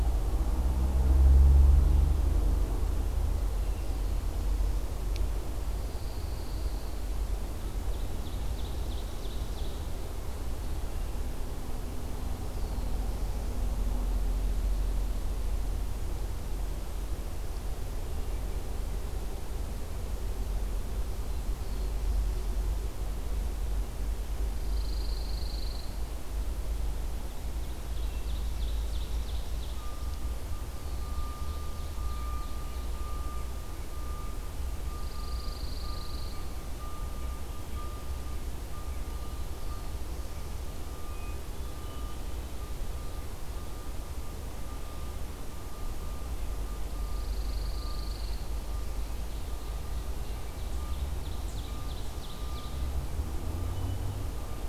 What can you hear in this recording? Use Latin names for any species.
Setophaga pinus, Seiurus aurocapilla, Setophaga caerulescens, Catharus guttatus